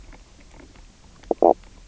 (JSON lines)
{"label": "biophony, knock croak", "recorder": "SoundTrap 300"}